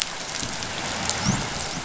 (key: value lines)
label: biophony, dolphin
recorder: SoundTrap 500